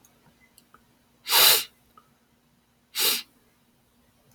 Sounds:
Sniff